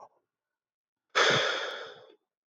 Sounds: Sigh